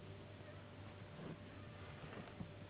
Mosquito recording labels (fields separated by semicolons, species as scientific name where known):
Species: Anopheles gambiae s.s.; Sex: female; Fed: unfed; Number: one; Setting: insect culture